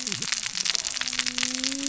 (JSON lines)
{"label": "biophony, cascading saw", "recorder": "SoundTrap 600 or HydroMoth"}